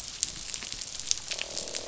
{"label": "biophony, croak", "recorder": "SoundTrap 500"}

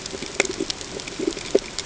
{"label": "ambient", "recorder": "HydroMoth"}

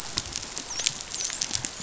{"label": "biophony, dolphin", "recorder": "SoundTrap 500"}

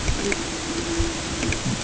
{"label": "ambient", "recorder": "HydroMoth"}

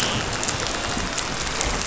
{"label": "biophony, dolphin", "recorder": "SoundTrap 500"}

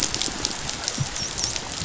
{"label": "biophony, dolphin", "recorder": "SoundTrap 500"}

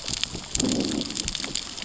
{"label": "biophony, growl", "recorder": "SoundTrap 600 or HydroMoth"}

